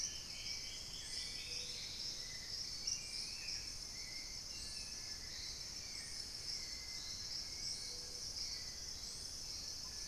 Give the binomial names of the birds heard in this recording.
Thamnomanes ardesiacus, Pygiptila stellaris, Turdus hauxwelli, Piprites chloris